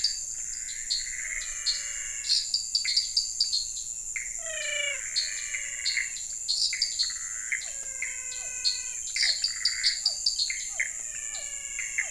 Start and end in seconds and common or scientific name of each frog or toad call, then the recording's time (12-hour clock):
0.0	12.1	dwarf tree frog
0.0	12.1	Pithecopus azureus
1.1	12.1	menwig frog
6.5	12.1	Physalaemus cuvieri
7:30pm